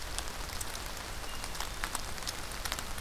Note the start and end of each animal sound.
1.1s-2.2s: Hermit Thrush (Catharus guttatus)

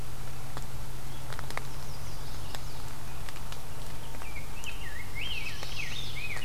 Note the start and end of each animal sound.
1.6s-2.9s: Chestnut-sided Warbler (Setophaga pensylvanica)
4.0s-6.4s: Rose-breasted Grosbeak (Pheucticus ludovicianus)
4.9s-6.2s: Black-throated Blue Warbler (Setophaga caerulescens)
5.2s-6.4s: Mourning Warbler (Geothlypis philadelphia)

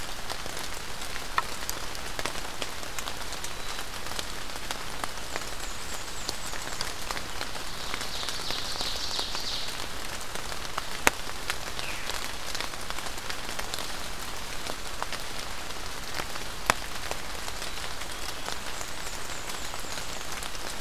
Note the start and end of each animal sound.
5.0s-6.8s: Black-and-white Warbler (Mniotilta varia)
7.8s-9.6s: Ovenbird (Seiurus aurocapilla)
11.7s-12.2s: Veery (Catharus fuscescens)
18.7s-20.2s: Black-and-white Warbler (Mniotilta varia)

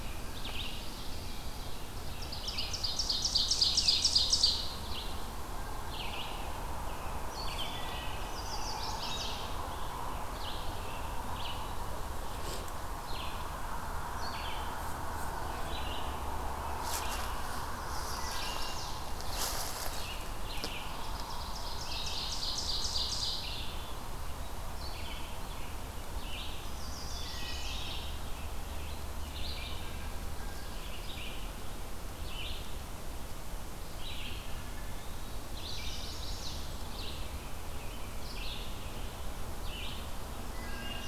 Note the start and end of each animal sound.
0.0s-41.1s: Red-eyed Vireo (Vireo olivaceus)
2.1s-4.8s: Ovenbird (Seiurus aurocapilla)
7.2s-8.3s: Wood Thrush (Hylocichla mustelina)
8.1s-9.6s: Chestnut-sided Warbler (Setophaga pensylvanica)
17.8s-19.1s: Chestnut-sided Warbler (Setophaga pensylvanica)
18.2s-19.0s: Wood Thrush (Hylocichla mustelina)
20.7s-23.9s: Ovenbird (Seiurus aurocapilla)
26.6s-28.3s: Chestnut-sided Warbler (Setophaga pensylvanica)
27.1s-28.2s: Wood Thrush (Hylocichla mustelina)
35.4s-36.9s: Chestnut-sided Warbler (Setophaga pensylvanica)
40.5s-41.0s: Wood Thrush (Hylocichla mustelina)

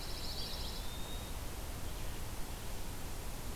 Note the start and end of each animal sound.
0.0s-0.8s: Red-eyed Vireo (Vireo olivaceus)
0.0s-0.9s: Pine Warbler (Setophaga pinus)
0.2s-1.4s: Eastern Wood-Pewee (Contopus virens)

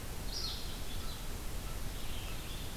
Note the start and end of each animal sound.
0.0s-2.6s: American Crow (Corvus brachyrhynchos)
0.0s-2.8s: Red-eyed Vireo (Vireo olivaceus)
2.2s-2.8s: Ovenbird (Seiurus aurocapilla)

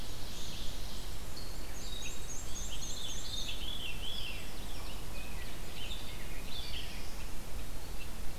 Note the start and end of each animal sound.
0.0s-1.3s: Ovenbird (Seiurus aurocapilla)
0.0s-7.0s: Red-eyed Vireo (Vireo olivaceus)
1.6s-3.4s: Black-and-white Warbler (Mniotilta varia)
2.7s-4.4s: Veery (Catharus fuscescens)
4.8s-7.1s: Rose-breasted Grosbeak (Pheucticus ludovicianus)

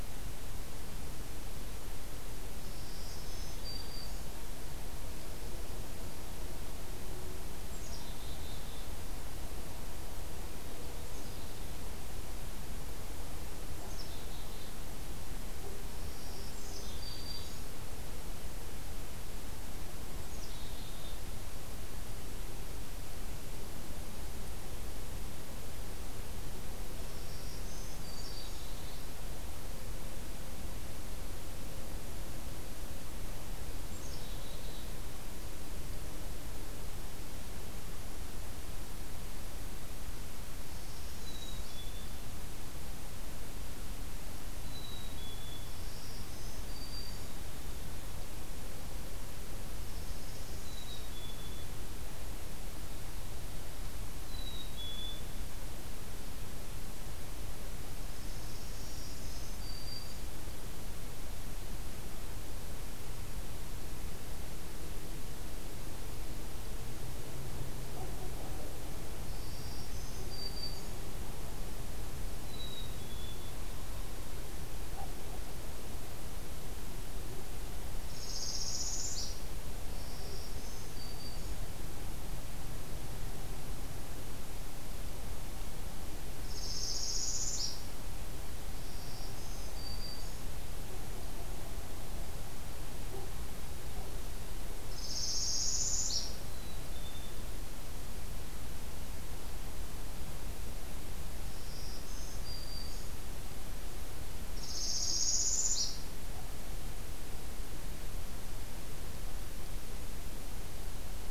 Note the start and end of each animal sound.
2.6s-4.3s: Black-throated Green Warbler (Setophaga virens)
7.5s-8.9s: Black-capped Chickadee (Poecile atricapillus)
11.0s-11.7s: Black-capped Chickadee (Poecile atricapillus)
13.7s-14.8s: Black-capped Chickadee (Poecile atricapillus)
15.8s-17.7s: Black-throated Green Warbler (Setophaga virens)
16.4s-17.5s: Black-capped Chickadee (Poecile atricapillus)
20.2s-21.3s: Black-capped Chickadee (Poecile atricapillus)
27.1s-28.7s: Black-throated Green Warbler (Setophaga virens)
27.9s-29.0s: Black-capped Chickadee (Poecile atricapillus)
33.8s-34.9s: Black-capped Chickadee (Poecile atricapillus)
40.7s-41.8s: Northern Parula (Setophaga americana)
41.2s-42.3s: Black-capped Chickadee (Poecile atricapillus)
44.6s-45.7s: Black-capped Chickadee (Poecile atricapillus)
45.7s-47.4s: Black-throated Green Warbler (Setophaga virens)
49.8s-51.1s: Northern Parula (Setophaga americana)
50.5s-51.7s: Black-capped Chickadee (Poecile atricapillus)
54.1s-55.4s: Black-capped Chickadee (Poecile atricapillus)
58.1s-59.4s: Northern Parula (Setophaga americana)
58.8s-60.3s: Black-throated Green Warbler (Setophaga virens)
69.3s-70.9s: Black-throated Green Warbler (Setophaga virens)
72.3s-73.6s: Black-capped Chickadee (Poecile atricapillus)
78.0s-79.4s: Northern Parula (Setophaga americana)
79.9s-81.7s: Black-throated Green Warbler (Setophaga virens)
86.4s-87.9s: Northern Parula (Setophaga americana)
88.8s-90.5s: Black-throated Green Warbler (Setophaga virens)
94.9s-96.2s: Northern Parula (Setophaga americana)
96.4s-97.4s: Black-capped Chickadee (Poecile atricapillus)
101.6s-103.1s: Black-throated Green Warbler (Setophaga virens)
104.5s-106.1s: Northern Parula (Setophaga americana)

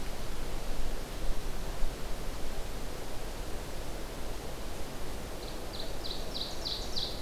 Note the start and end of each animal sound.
5.3s-7.2s: Ovenbird (Seiurus aurocapilla)

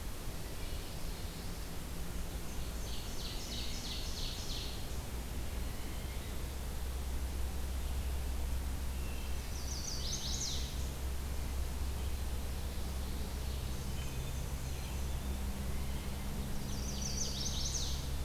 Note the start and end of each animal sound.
2.3s-5.0s: Ovenbird (Seiurus aurocapilla)
8.8s-9.6s: Wood Thrush (Hylocichla mustelina)
9.0s-11.0s: Chestnut-sided Warbler (Setophaga pensylvanica)
13.6s-15.3s: Black-and-white Warbler (Mniotilta varia)
13.8s-14.4s: Red-breasted Nuthatch (Sitta canadensis)
14.6s-15.4s: Black-capped Chickadee (Poecile atricapillus)
15.9s-17.5s: Ovenbird (Seiurus aurocapilla)
16.3s-18.2s: Chestnut-sided Warbler (Setophaga pensylvanica)

